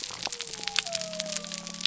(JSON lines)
{"label": "biophony", "recorder": "SoundTrap 300"}